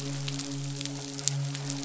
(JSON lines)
{"label": "biophony, midshipman", "recorder": "SoundTrap 500"}